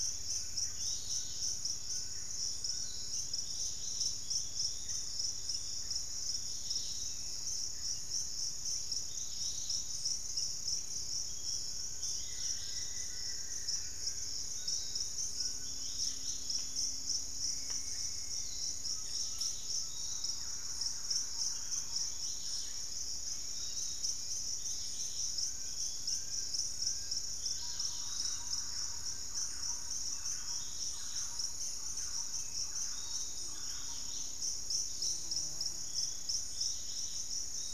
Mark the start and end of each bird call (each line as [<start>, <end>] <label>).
[0.00, 3.14] Fasciated Antshrike (Cymbilaimus lineatus)
[0.00, 37.73] Dusky-capped Greenlet (Pachysylvia hypoxantha)
[0.00, 37.73] Piratic Flycatcher (Legatus leucophaius)
[11.44, 15.94] Fasciated Antshrike (Cymbilaimus lineatus)
[12.04, 14.14] unidentified bird
[17.34, 18.74] White-throated Woodpecker (Piculus leucolaemus)
[18.74, 20.14] Undulated Tinamou (Crypturellus undulatus)
[19.84, 22.24] Thrush-like Wren (Campylorhynchus turdinus)
[21.94, 24.14] unidentified bird
[22.54, 26.14] Gray Antwren (Myrmotherula menetriesii)
[25.34, 29.44] Fasciated Antshrike (Cymbilaimus lineatus)
[27.44, 34.24] Thrush-like Wren (Campylorhynchus turdinus)
[29.94, 33.14] unidentified bird